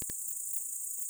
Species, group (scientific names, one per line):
Pholidoptera griseoaptera
Orthoptera